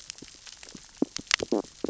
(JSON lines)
{"label": "biophony, stridulation", "recorder": "SoundTrap 600 or HydroMoth"}